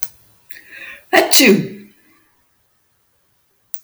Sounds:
Sneeze